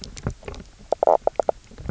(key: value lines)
label: biophony, knock croak
recorder: SoundTrap 300